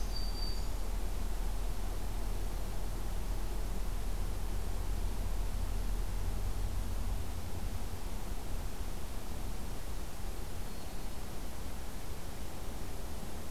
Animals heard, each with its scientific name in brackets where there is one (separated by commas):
Black-throated Green Warbler (Setophaga virens)